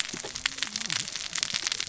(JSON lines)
{"label": "biophony, cascading saw", "recorder": "SoundTrap 600 or HydroMoth"}